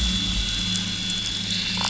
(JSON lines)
{"label": "anthrophony, boat engine", "recorder": "SoundTrap 500"}
{"label": "biophony, damselfish", "recorder": "SoundTrap 500"}